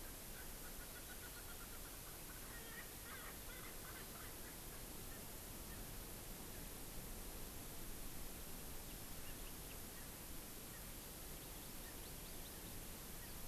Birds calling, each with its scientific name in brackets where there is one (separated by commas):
Erckel's Francolin (Pternistis erckelii), Hawaii Amakihi (Chlorodrepanis virens)